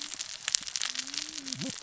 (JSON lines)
{"label": "biophony, cascading saw", "recorder": "SoundTrap 600 or HydroMoth"}